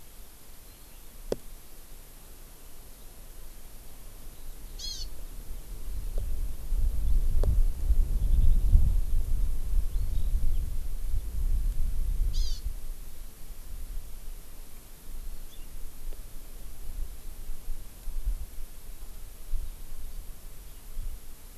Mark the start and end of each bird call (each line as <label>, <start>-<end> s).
Hawaii Amakihi (Chlorodrepanis virens), 4.7-5.1 s
Eurasian Skylark (Alauda arvensis), 8.1-8.6 s
Eurasian Skylark (Alauda arvensis), 9.9-10.3 s
Hawaii Amakihi (Chlorodrepanis virens), 12.3-12.6 s
Hawaii Amakihi (Chlorodrepanis virens), 15.2-15.7 s